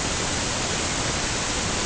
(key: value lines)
label: ambient
recorder: HydroMoth